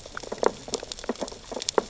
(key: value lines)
label: biophony, sea urchins (Echinidae)
recorder: SoundTrap 600 or HydroMoth